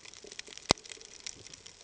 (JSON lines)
{"label": "ambient", "recorder": "HydroMoth"}